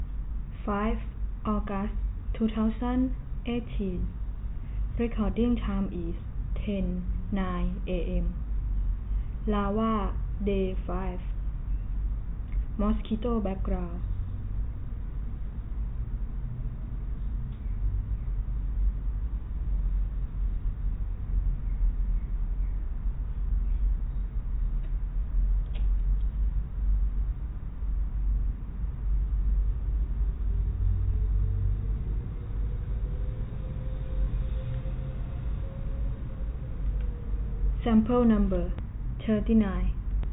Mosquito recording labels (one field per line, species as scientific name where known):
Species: no mosquito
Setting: cup